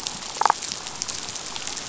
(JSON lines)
{"label": "biophony, damselfish", "recorder": "SoundTrap 500"}